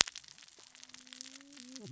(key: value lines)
label: biophony, cascading saw
recorder: SoundTrap 600 or HydroMoth